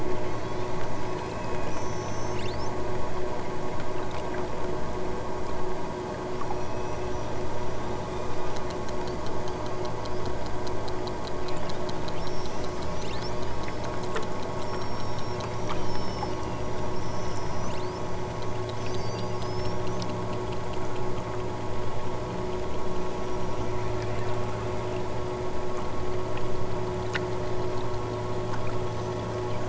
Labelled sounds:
0.2	2.8	killer whale, southern Alaska resident, 2.0 to 8.0 kHz
6.3	7.4	killer whale, southern Alaska resident, 2.5 to 6.6 kHz
8.0	8.7	killer whale, southern Alaska resident, 2.1 to 6.7 kHz
11.4	13.3	killer whale, southern Alaska resident, 1.5 to 8.0 kHz
14.6	18.1	killer whale, southern Alaska resident, 2.2 to 8.0 kHz
18.7	20.0	killer whale, southern Alaska resident, 3.9 to 8.0 kHz

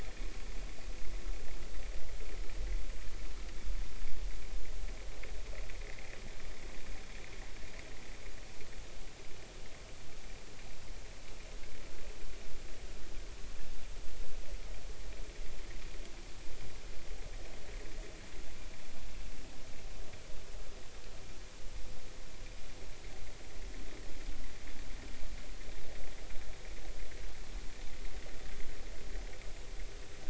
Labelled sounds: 5.9	6.2	vessel noise, 1.8 to 2.2 kHz

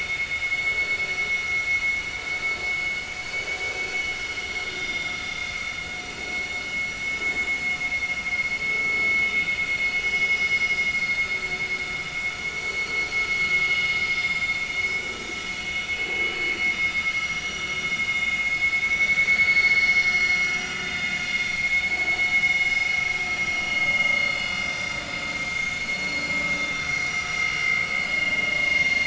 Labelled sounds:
3.3	3.6	vessel noise, 2.9 to 3.0 kHz
4.5	5.6	vessel noise, 2.0 to 6.5 kHz
12.5	12.9	vessel noise, 4.3 to 4.4 kHz
14.7	15.0	vessel noise, 3.6 to 3.8 kHz
15.9	16.3	vessel noise, 2.5 to 2.7 kHz
17.1	17.6	vessel noise, 5.7 to 5.9 kHz
18.9	20.2	vessel noise, 2.2 to 6.0 kHz
20.8	21.5	vessel noise, 3.3 to 3.7 kHz
22.6	22.9	vessel noise, 5.0 to 5.2 kHz
23.5	24.3	vessel noise, 2.1 to 6.4 kHz
24.6	25.0	vessel noise, 4.9 to 6.4 kHz
25.9	26.3	vessel noise, 4.3 to 4.4 kHz
27.3	27.8	vessel noise, 2.0 to 5.7 kHz
28.1	29.0	vessel noise, 2.7 to 6.4 kHz

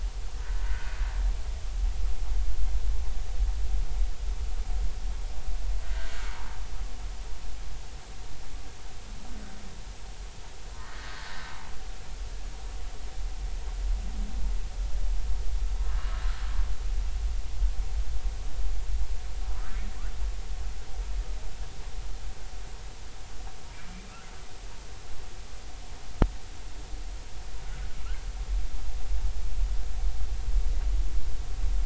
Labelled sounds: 0.6	1.0	humpback whale, 1.4 to 1.6 kHz
5.8	6.3	humpback whale, 1.2 to 1.7 kHz
10.8	11.1	humpback whale, 1.8 to 1.9 kHz

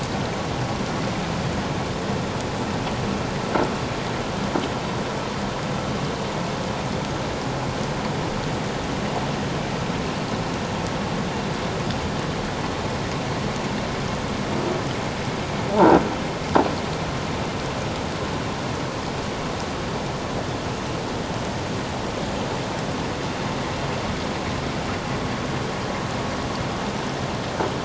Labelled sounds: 15.7	16.0	croaking sound likely from a nearby submerged object, 0.78 to 1.0 kHz

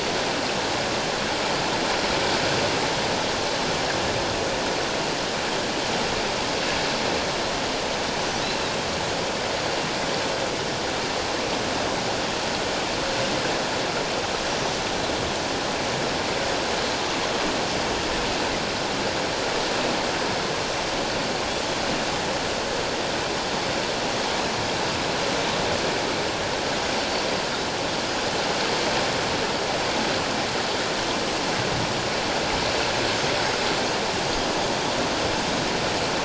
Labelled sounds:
14.6	14.9	Pacific white-sided dolphin, 5.9 to 6.1 kHz

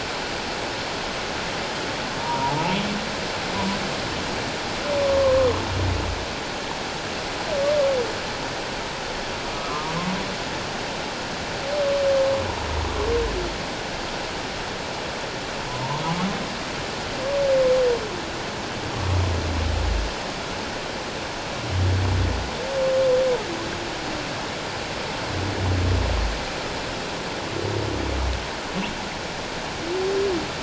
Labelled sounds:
2.2	2.7	humpback whale, 0.81 to 1.0 kHz
5.0	5.4	humpback whale, 1.0 to 1.2 kHz
9.7	9.9	humpback whale, 1.0 to 1.3 kHz
15.7	16.0	humpback whale, 0.84 to 1.1 kHz

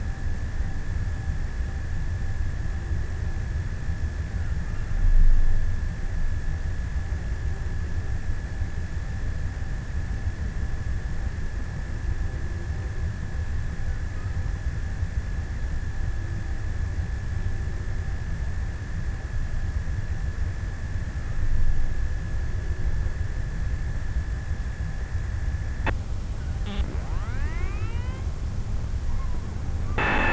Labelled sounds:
3.6	6.0	killer whale, offshore, 0.75 to 1.8 kHz

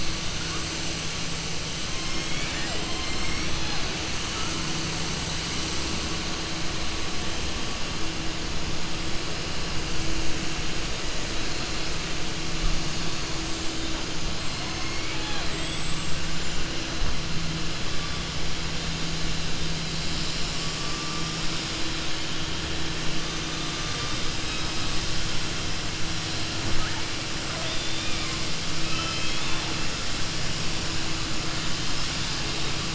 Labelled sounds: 27.5	28.4	killer whale, southern resident, 1.2 to 4.2 kHz

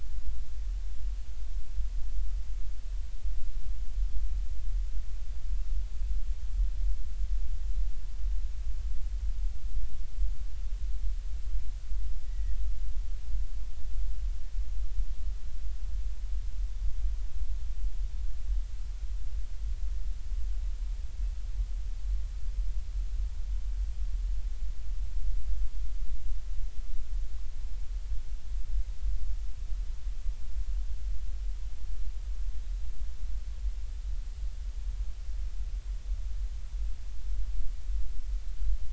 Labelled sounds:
12.2	12.6	Pacific white-sided dolphin, 1.8 to 2.0 kHz

